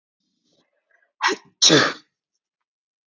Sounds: Sneeze